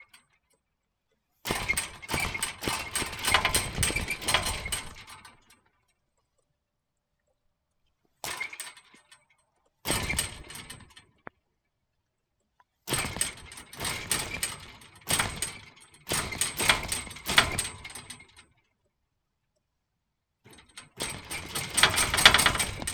Is paper being ripped?
no